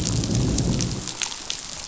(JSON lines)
{"label": "biophony, growl", "recorder": "SoundTrap 500"}